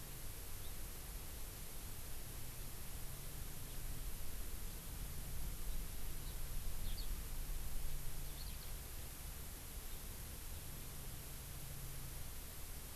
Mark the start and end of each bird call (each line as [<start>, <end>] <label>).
[6.80, 7.10] Eurasian Skylark (Alauda arvensis)
[8.30, 8.70] Eurasian Skylark (Alauda arvensis)